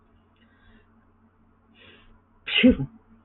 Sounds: Sneeze